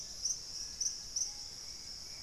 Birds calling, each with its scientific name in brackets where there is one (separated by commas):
Dusky-capped Greenlet (Pachysylvia hypoxantha), Bright-rumped Attila (Attila spadiceus), Screaming Piha (Lipaugus vociferans)